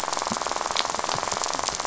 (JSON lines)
{"label": "biophony, rattle", "recorder": "SoundTrap 500"}